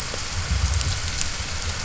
{"label": "anthrophony, boat engine", "recorder": "SoundTrap 300"}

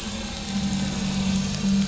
{"label": "anthrophony, boat engine", "recorder": "SoundTrap 500"}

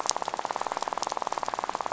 {"label": "biophony, rattle", "recorder": "SoundTrap 500"}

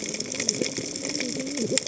{"label": "biophony, cascading saw", "recorder": "HydroMoth"}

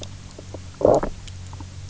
{"label": "biophony, low growl", "recorder": "SoundTrap 300"}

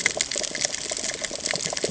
{"label": "ambient", "recorder": "HydroMoth"}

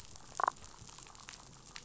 {"label": "biophony, damselfish", "recorder": "SoundTrap 500"}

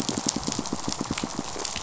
{"label": "biophony, pulse", "recorder": "SoundTrap 500"}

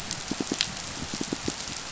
{"label": "biophony, pulse", "recorder": "SoundTrap 500"}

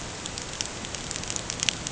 {"label": "ambient", "recorder": "HydroMoth"}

